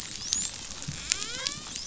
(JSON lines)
{"label": "biophony, dolphin", "recorder": "SoundTrap 500"}